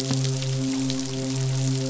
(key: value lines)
label: biophony, midshipman
recorder: SoundTrap 500